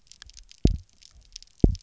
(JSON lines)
{"label": "biophony, double pulse", "recorder": "SoundTrap 300"}